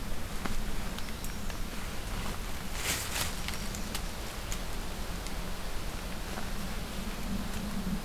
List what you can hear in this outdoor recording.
American Redstart